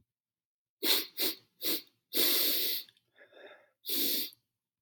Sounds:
Sniff